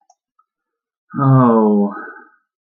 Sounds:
Sigh